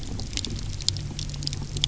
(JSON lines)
{"label": "anthrophony, boat engine", "recorder": "SoundTrap 300"}